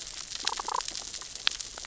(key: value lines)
label: biophony, damselfish
recorder: SoundTrap 600 or HydroMoth